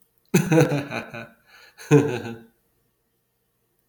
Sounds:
Laughter